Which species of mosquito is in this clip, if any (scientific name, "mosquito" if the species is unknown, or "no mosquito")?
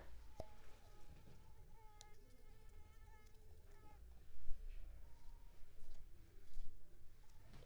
Culex pipiens complex